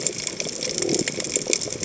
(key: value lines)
label: biophony
recorder: HydroMoth